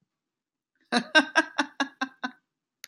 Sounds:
Laughter